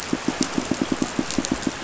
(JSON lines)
{"label": "biophony, pulse", "recorder": "SoundTrap 500"}